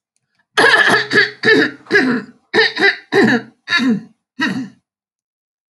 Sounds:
Throat clearing